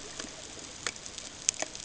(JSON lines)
{"label": "ambient", "recorder": "HydroMoth"}